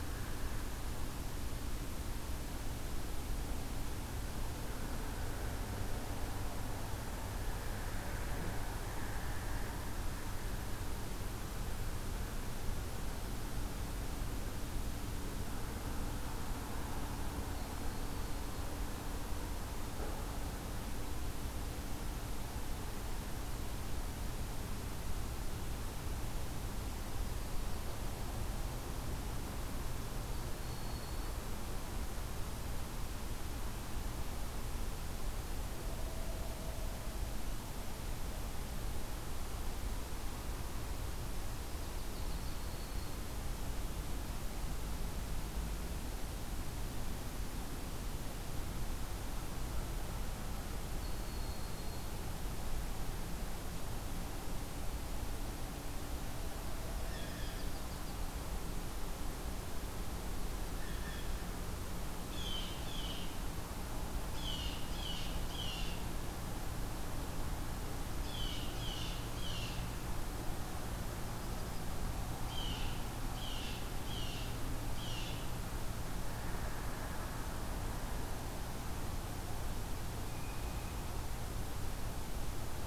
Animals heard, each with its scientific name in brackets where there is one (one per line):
Yellow-rumped Warbler (Setophaga coronata)
Broad-winged Hawk (Buteo platypterus)
Blue Jay (Cyanocitta cristata)